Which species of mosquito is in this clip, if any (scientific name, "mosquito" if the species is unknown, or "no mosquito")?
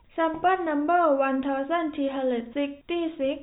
no mosquito